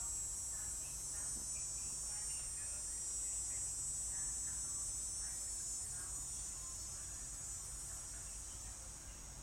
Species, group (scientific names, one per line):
Neotibicen canicularis
Cicadidae